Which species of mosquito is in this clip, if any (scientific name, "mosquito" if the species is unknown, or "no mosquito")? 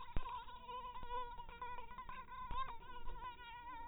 mosquito